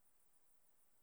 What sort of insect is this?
orthopteran